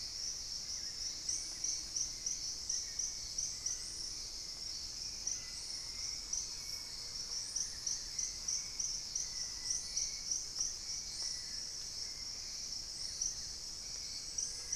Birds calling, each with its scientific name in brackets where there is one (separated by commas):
Thrush-like Wren (Campylorhynchus turdinus), Hauxwell's Thrush (Turdus hauxwelli), Long-billed Woodcreeper (Nasica longirostris), Mealy Parrot (Amazona farinosa), unidentified bird, Gray-fronted Dove (Leptotila rufaxilla)